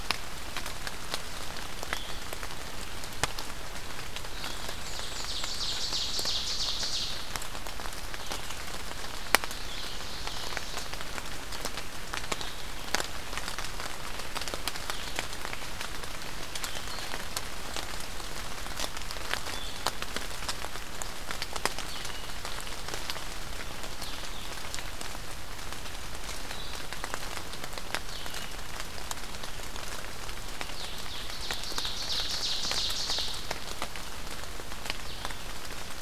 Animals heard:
Ovenbird (Seiurus aurocapilla), Black-and-white Warbler (Mniotilta varia), Blue-headed Vireo (Vireo solitarius)

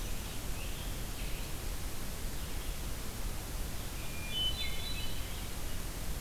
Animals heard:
Red-eyed Vireo (Vireo olivaceus), Hermit Thrush (Catharus guttatus)

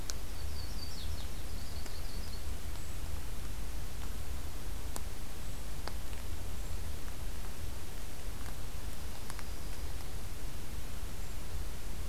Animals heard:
Yellow-rumped Warbler (Setophaga coronata)

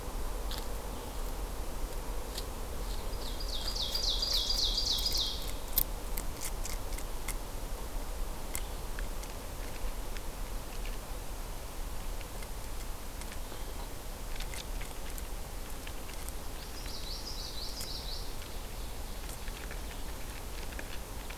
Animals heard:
Common Yellowthroat (Geothlypis trichas), Ovenbird (Seiurus aurocapilla)

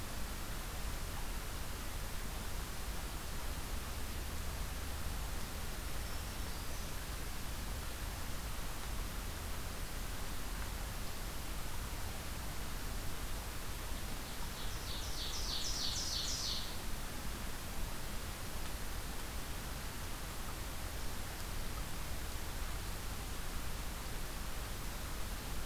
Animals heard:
Black-throated Green Warbler (Setophaga virens), Ovenbird (Seiurus aurocapilla)

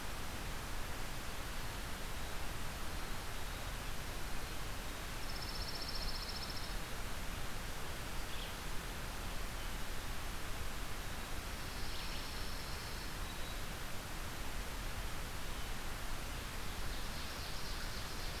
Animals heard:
Red-eyed Vireo (Vireo olivaceus), Ovenbird (Seiurus aurocapilla), Pine Warbler (Setophaga pinus)

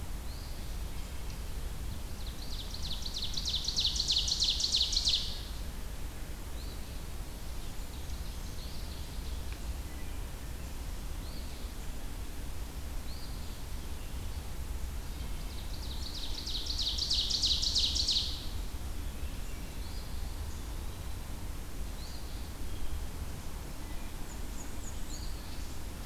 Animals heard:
Black-and-white Warbler (Mniotilta varia), Ovenbird (Seiurus aurocapilla), Wood Thrush (Hylocichla mustelina), Eastern Wood-Pewee (Contopus virens), Eastern Phoebe (Sayornis phoebe)

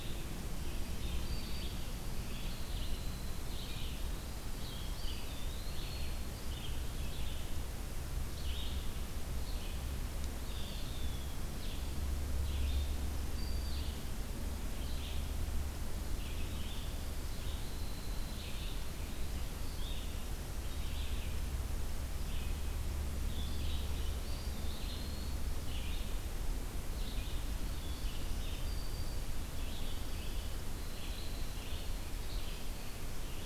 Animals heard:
Red-eyed Vireo (Vireo olivaceus), Eastern Wood-Pewee (Contopus virens), Winter Wren (Troglodytes hiemalis), Black-throated Green Warbler (Setophaga virens)

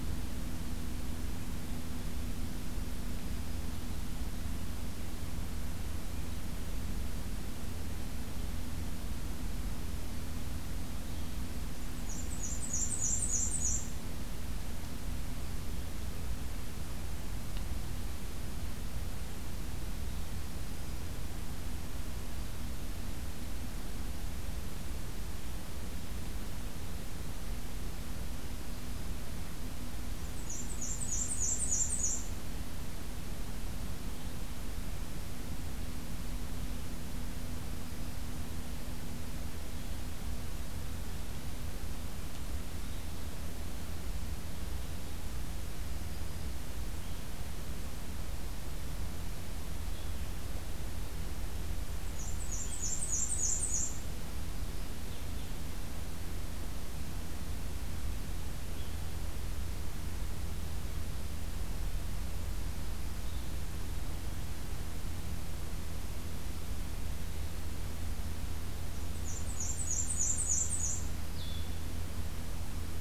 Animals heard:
Black-and-white Warbler (Mniotilta varia), Blue-headed Vireo (Vireo solitarius), Black-throated Green Warbler (Setophaga virens)

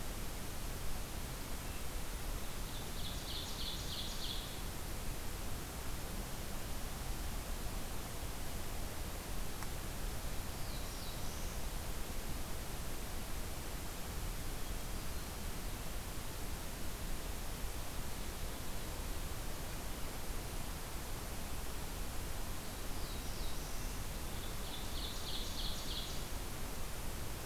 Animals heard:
Hermit Thrush (Catharus guttatus), Black-throated Blue Warbler (Setophaga caerulescens), Ovenbird (Seiurus aurocapilla)

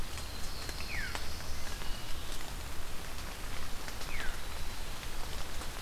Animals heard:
Wood Thrush (Hylocichla mustelina), Veery (Catharus fuscescens), Black-throated Blue Warbler (Setophaga caerulescens), Eastern Wood-Pewee (Contopus virens)

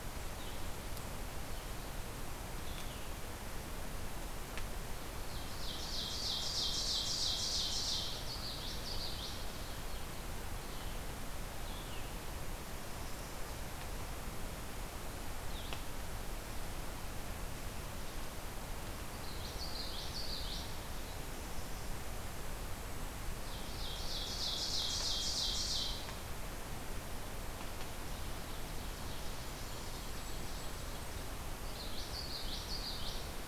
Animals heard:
Ovenbird (Seiurus aurocapilla), Golden-crowned Kinglet (Regulus satrapa), Blue-headed Vireo (Vireo solitarius), Common Yellowthroat (Geothlypis trichas)

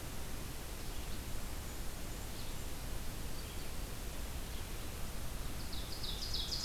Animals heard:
Ovenbird (Seiurus aurocapilla), Red-eyed Vireo (Vireo olivaceus)

